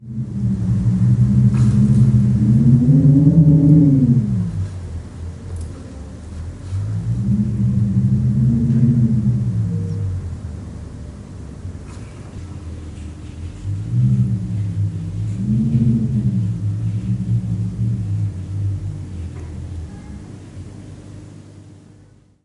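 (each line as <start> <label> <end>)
0.0 The wind howls loudly in the distance. 4.8
4.8 Distant, muffled background noise of wind. 6.7
6.7 Muffled and distant wind howling. 10.3
10.4 Distant, muffled background noise of wind. 13.5
13.7 Wind howling softly and fading in the distance. 22.4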